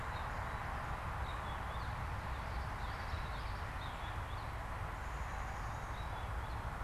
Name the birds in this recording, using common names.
Purple Finch, Black-capped Chickadee